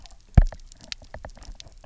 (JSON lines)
{"label": "biophony, knock", "recorder": "SoundTrap 300"}